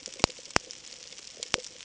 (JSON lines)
{"label": "ambient", "recorder": "HydroMoth"}